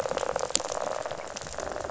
{"label": "biophony, rattle", "recorder": "SoundTrap 500"}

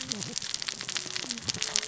{"label": "biophony, cascading saw", "recorder": "SoundTrap 600 or HydroMoth"}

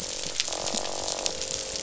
{"label": "biophony, croak", "recorder": "SoundTrap 500"}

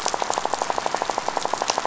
{"label": "biophony, rattle", "recorder": "SoundTrap 500"}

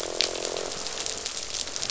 {"label": "biophony, croak", "recorder": "SoundTrap 500"}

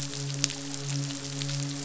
{"label": "biophony, midshipman", "recorder": "SoundTrap 500"}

